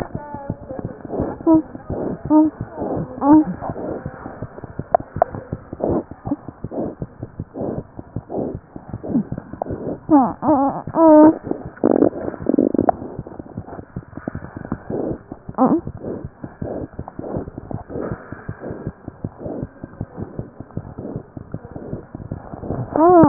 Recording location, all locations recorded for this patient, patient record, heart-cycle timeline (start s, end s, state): mitral valve (MV)
aortic valve (AV)+mitral valve (MV)
#Age: Infant
#Sex: Male
#Height: 62.0 cm
#Weight: 7.6 kg
#Pregnancy status: False
#Murmur: Unknown
#Murmur locations: nan
#Most audible location: nan
#Systolic murmur timing: nan
#Systolic murmur shape: nan
#Systolic murmur grading: nan
#Systolic murmur pitch: nan
#Systolic murmur quality: nan
#Diastolic murmur timing: nan
#Diastolic murmur shape: nan
#Diastolic murmur grading: nan
#Diastolic murmur pitch: nan
#Diastolic murmur quality: nan
#Outcome: Abnormal
#Campaign: 2015 screening campaign
0.00	16.59	unannotated
16.59	16.66	S1
16.66	16.81	systole
16.81	16.87	S2
16.87	16.98	diastole
16.98	17.03	S1
17.03	17.17	systole
17.17	17.23	S2
17.23	17.35	diastole
17.35	17.39	S1
17.39	17.56	systole
17.56	17.61	S2
17.61	17.72	diastole
17.72	17.78	S1
17.78	17.93	systole
17.93	17.99	S2
17.99	18.10	diastole
18.10	18.17	S1
18.17	18.30	systole
18.30	18.36	S2
18.36	18.47	diastole
18.47	18.53	S1
18.53	18.68	systole
18.68	18.74	S2
18.74	18.85	diastole
18.85	18.91	S1
18.91	19.06	systole
19.06	19.10	S2
19.10	19.21	diastole
19.21	19.29	S1
19.29	19.44	systole
19.44	19.48	S2
19.48	19.61	diastole
19.61	19.68	S1
19.68	19.82	systole
19.82	19.87	S2
19.87	19.99	diastole
19.99	20.07	S1
20.07	20.20	systole
20.20	20.26	S2
20.26	20.36	diastole
20.36	20.45	S1
20.45	20.58	systole
20.58	20.63	S2
20.63	20.75	diastole
20.75	20.81	S1
20.81	20.97	systole
20.97	21.02	S2
21.02	21.14	diastole
21.14	21.21	S1
21.21	21.35	systole
21.35	21.41	S2
21.41	21.53	diastole
21.53	21.59	S1
21.59	21.74	systole
21.74	21.80	S2
21.80	21.92	diastole
21.92	21.97	S1
21.97	22.12	systole
22.12	22.18	S2
22.18	22.30	diastole
22.30	22.36	S1
22.36	23.28	unannotated